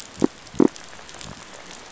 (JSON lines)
{"label": "biophony", "recorder": "SoundTrap 500"}